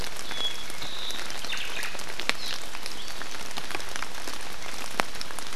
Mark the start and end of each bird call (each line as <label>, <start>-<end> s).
Apapane (Himatione sanguinea), 0.3-0.7 s
Omao (Myadestes obscurus), 0.8-2.0 s